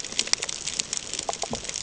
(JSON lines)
{"label": "ambient", "recorder": "HydroMoth"}